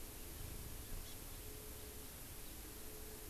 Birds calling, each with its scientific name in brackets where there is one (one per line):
Hawaii Amakihi (Chlorodrepanis virens)